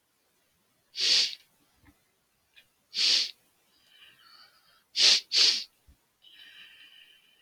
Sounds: Sniff